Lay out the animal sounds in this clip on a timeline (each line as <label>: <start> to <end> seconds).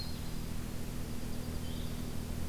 Black-throated Green Warbler (Setophaga virens): 0.0 to 0.7 seconds
Blue-headed Vireo (Vireo solitarius): 0.0 to 2.5 seconds
Dark-eyed Junco (Junco hyemalis): 0.9 to 2.1 seconds